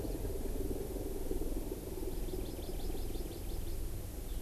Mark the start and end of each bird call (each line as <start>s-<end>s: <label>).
1.9s-3.8s: Hawaii Amakihi (Chlorodrepanis virens)